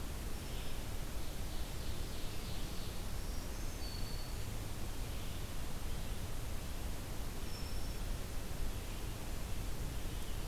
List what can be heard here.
Ovenbird, Black-throated Green Warbler, Broad-winged Hawk